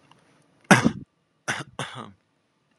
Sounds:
Cough